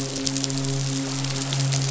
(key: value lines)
label: biophony, midshipman
recorder: SoundTrap 500